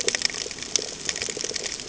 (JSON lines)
{"label": "ambient", "recorder": "HydroMoth"}